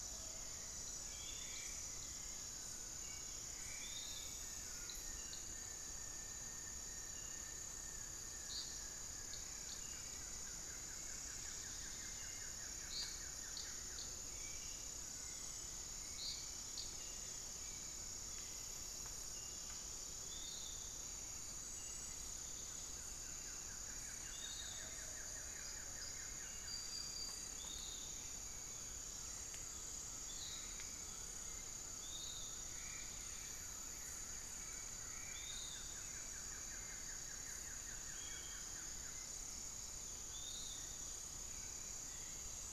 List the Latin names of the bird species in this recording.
Legatus leucophaius, Turdus hauxwelli, unidentified bird, Xiphorhynchus guttatus, Myrmotherula longipennis, Monasa nigrifrons